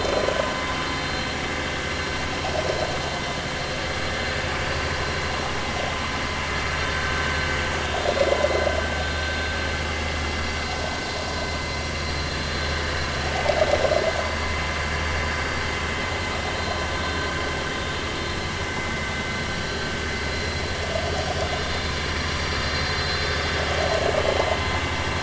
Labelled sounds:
1.0	1.2	vessel noise, 4.1 to 4.2 kHz
4.6	4.9	vessel noise, 4.5 to 4.7 kHz
20.3	20.6	vessel noise, 4.0 to 4.1 kHz
21.4	21.8	vessel noise, 3.5 to 3.7 kHz
22.6	23.3	vessel noise, 4.0 to 4.3 kHz

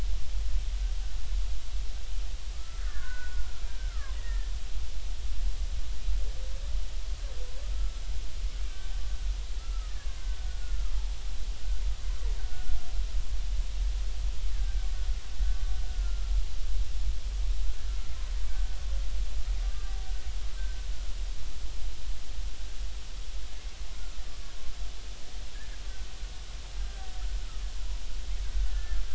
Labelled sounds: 2.5	4.5	killer whale, Bigg's (transient), 0.93 to 2.0 kHz
7.7	8.0	killer whale, Bigg's (transient), 1.3 to 1.4 kHz
8.6	10.9	killer whale, Bigg's (transient), 0.99 to 1.5 kHz
12.4	12.8	killer whale, Bigg's (transient), 1.4 to 1.7 kHz
14.5	14.9	killer whale, Bigg's (transient), 1.5 to 1.9 kHz
15.9	16.3	killer whale, Bigg's (transient), 1.2 to 1.5 kHz
23.9	24.2	killer whale, Bigg's (transient), 1.2 to 1.5 kHz
26.8	27.1	killer whale, Bigg's (transient), 1.5 to 1.6 kHz
28.7	29.0	killer whale, Bigg's (transient), 1.6 to 1.8 kHz

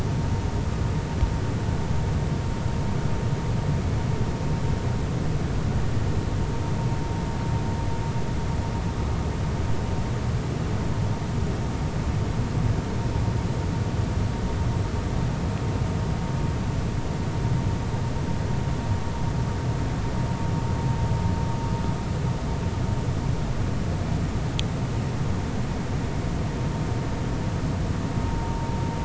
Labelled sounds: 28.3	28.7	vessel noise, 0.86 to 1.0 kHz

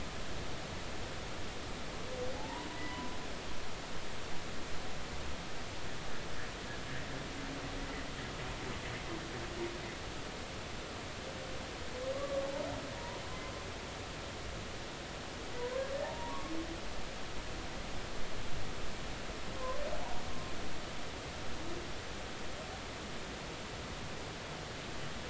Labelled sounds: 2.4	3.1	humpback whale, 0.80 to 2.0 kHz
12.1	13.2	humpback whale, 0.90 to 1.2 kHz
16.0	16.5	humpback whale, 0.80 to 1.2 kHz

